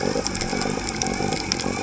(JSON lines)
{"label": "biophony", "recorder": "HydroMoth"}